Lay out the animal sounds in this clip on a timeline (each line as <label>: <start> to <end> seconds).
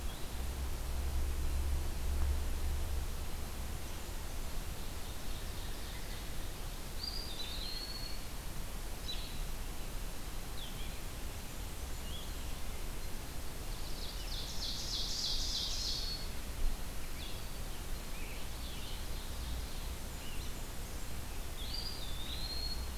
Blackburnian Warbler (Setophaga fusca): 3.4 to 4.8 seconds
Ovenbird (Seiurus aurocapilla): 4.5 to 6.2 seconds
Eastern Wood-Pewee (Contopus virens): 6.8 to 8.3 seconds
Blue-headed Vireo (Vireo solitarius): 9.0 to 12.3 seconds
Blackburnian Warbler (Setophaga fusca): 11.0 to 12.3 seconds
Ovenbird (Seiurus aurocapilla): 13.6 to 16.3 seconds
Blue-headed Vireo (Vireo solitarius): 13.7 to 22.0 seconds
Eastern Wood-Pewee (Contopus virens): 15.2 to 16.4 seconds
Scarlet Tanager (Piranga olivacea): 17.0 to 19.0 seconds
Ovenbird (Seiurus aurocapilla): 18.3 to 20.0 seconds
Blackburnian Warbler (Setophaga fusca): 19.8 to 21.2 seconds
Eastern Wood-Pewee (Contopus virens): 21.4 to 23.0 seconds